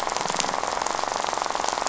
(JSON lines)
{"label": "biophony, rattle", "recorder": "SoundTrap 500"}